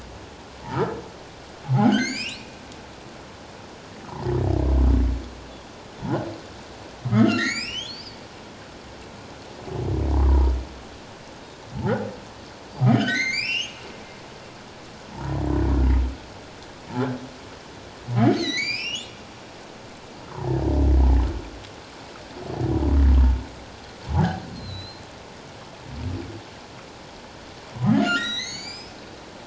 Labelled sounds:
1.7	2.6	humpback whale, 0.78 to 7.2 kHz
4.1	4.3	humpback whale, 0.81 to 1.1 kHz
7.1	8.2	humpback whale, 1.2 to 7.9 kHz
10.1	10.5	humpback whale, 0.81 to 1.2 kHz
12.9	13.8	humpback whale, 1.4 to 7.7 kHz
18.3	19.2	humpback whale, 1.9 to 7.4 kHz
24.1	25.0	humpback whale, 0.78 to 4.3 kHz
27.9	29.0	humpback whale, 1.3 to 7.9 kHz

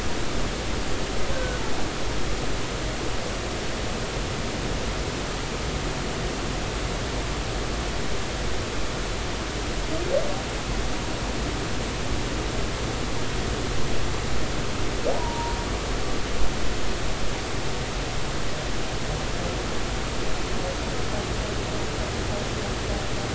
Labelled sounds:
1.3	1.6	humpback whale, 1.4 to 1.6 kHz
15.2	15.6	humpback whale, 0.90 to 1.0 kHz

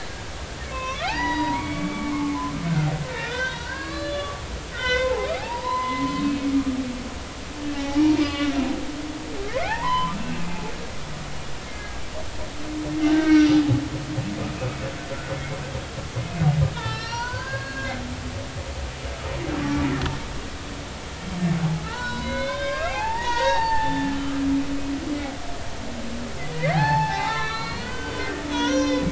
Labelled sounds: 0.7	2.5	humpback whale, 0.80 to 4.9 kHz
3.1	4.4	humpback whale, 0.99 to 4.7 kHz
4.7	6.8	humpback whale, 0.80 to 5.7 kHz
7.7	8.6	humpback whale, 0.80 to 3.5 kHz
9.5	10.4	humpback whale, 0.80 to 3.1 kHz
11.6	12.0	humpback whale, 1.6 to 2.2 kHz
13.0	13.6	humpback whale, 1.4 to 5.9 kHz
16.8	17.9	humpback whale, 0.83 to 6.0 kHz
21.8	24.4	humpback whale, 0.80 to 5.6 kHz
26.5	29.1	humpback whale, 0.80 to 6.4 kHz

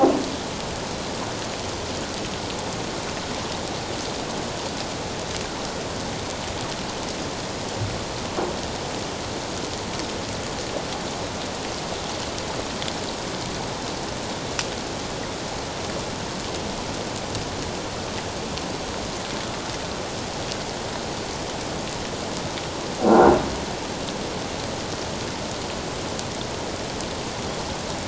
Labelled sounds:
23.1	23.4	croaking sound likely from a nearby submerged object, 1.3 to 1.6 kHz

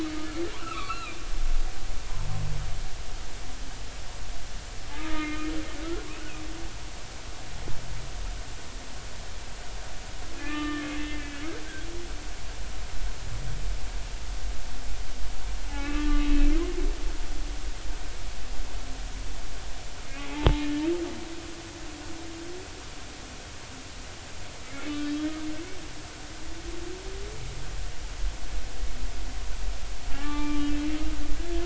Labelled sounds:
0.5	1.2	humpback whale, 0.90 to 2.9 kHz
5.0	5.5	humpback whale, 1.2 to 2.5 kHz
10.3	11.4	humpback whale, 1.1 to 3.0 kHz
15.7	16.3	humpback whale, 1.1 to 2.7 kHz
24.7	25.2	humpback whale, 2.0 to 3.9 kHz
30.1	30.7	humpback whale, 0.80 to 2.4 kHz
31.3	31.6	humpback whale, 1.6 to 1.8 kHz

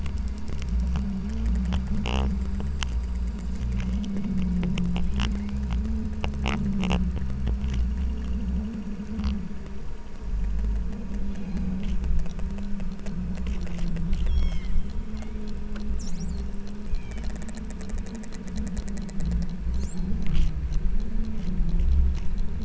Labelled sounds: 3.6	4.6	killer whale, southern Alaska resident, 1.8 to 3.1 kHz
5.3	5.7	killer whale, southern Alaska resident, 1.9 to 3.4 kHz
11.2	11.8	killer whale, southern Alaska resident, 3.6 to 5.2 kHz
14.3	14.8	killer whale, southern Alaska resident, 1.7 to 6.7 kHz
15.1	15.5	killer whale, southern Alaska resident, 1.9 to 3.9 kHz
16.9	17.3	killer whale, southern Alaska resident, 2.1 to 3.4 kHz
19.9	20.3	killer whale, southern Alaska resident, 3.1 to 6.6 kHz

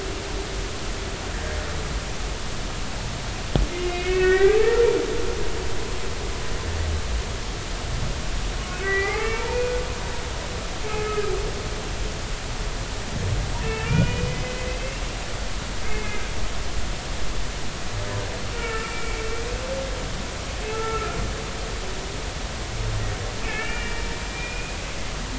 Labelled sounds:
3.7	4.6	humpback whale, 1.4 to 3.0 kHz
8.7	9.8	humpback whale, 0.80 to 2.5 kHz
10.8	11.2	humpback whale, 1.2 to 2.3 kHz
13.6	14.9	humpback whale, 1.3 to 3.0 kHz
15.8	16.3	humpback whale, 1.5 to 2.6 kHz
18.5	19.2	humpback whale, 1.3 to 2.8 kHz
20.7	21.2	humpback whale, 1.2 to 1.4 kHz
23.4	24.8	humpback whale, 1.7 to 2.9 kHz

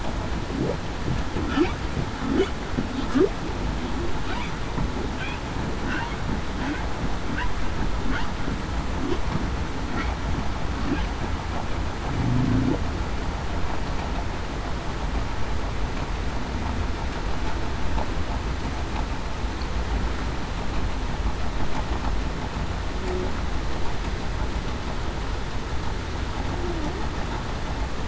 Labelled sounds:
12.2	12.7	humpback whale, 0.19 to 0.40 kHz

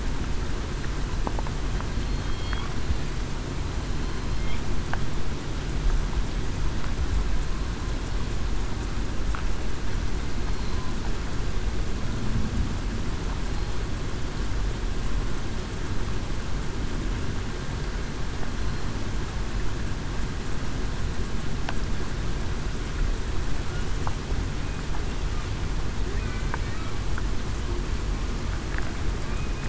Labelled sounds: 2.1	2.6	killer whale, southern resident, 3.2 to 3.3 kHz

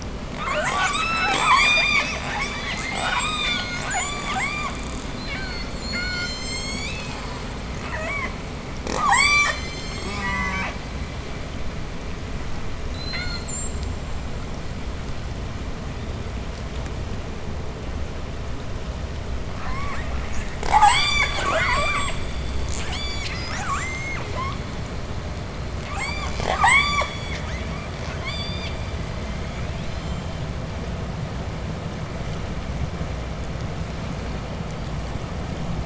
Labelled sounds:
0.0	5.8	killer whale, southern resident, J pod, 0.37 to 8.0 kHz
5.8	7.6	killer whale, southern resident, J pod, call S01, 1.1 to 8.0 kHz
7.6	10.5	killer whale, southern resident, J pod, 0.07 to 8.0 kHz
9.9	11.1	killer whale, southern resident, J pod, call S04, 0.47 to 8.0 kHz
12.8	14.3	killer whale, southern resident, J pod, 0.97 to 8.0 kHz
19.4	22.3	killer whale, southern resident, J pod, 0.22 to 8.0 kHz
22.6	23.5	killer whale, southern resident, J pod, 0.53 to 8.0 kHz
23.5	24.6	killer whale, southern resident, J pod, call S02i, 0.37 to 8.0 kHz
25.8	27.4	killer whale, southern resident, J pod, 0.18 to 8.0 kHz
27.9	30.5	killer whale, southern resident, J pod, 0.75 to 8.0 kHz

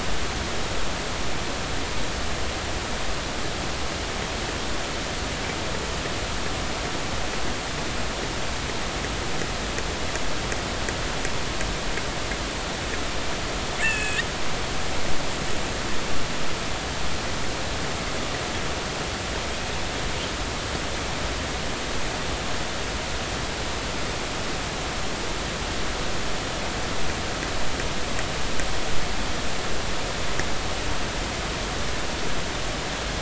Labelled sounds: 13.8	14.3	killer whale, northern resident, 1.6 to 2.8 kHz

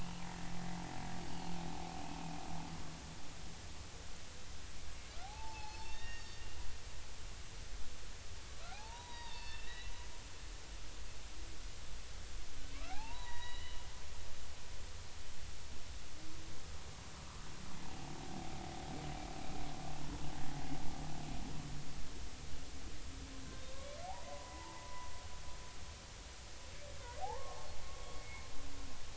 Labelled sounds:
5.2	6.4	humpback whale, 0.80 to 5.6 kHz
8.7	9.9	humpback whale, 0.80 to 4.5 kHz
12.7	13.8	humpback whale, 0.80 to 6.0 kHz
14.2	14.7	humpback whale, 1.8 to 2.0 kHz
24.3	25.1	humpback whale, 0.86 to 1.1 kHz
27.2	28.4	humpback whale, 0.80 to 2.2 kHz

